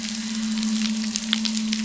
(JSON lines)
{"label": "biophony", "recorder": "SoundTrap 300"}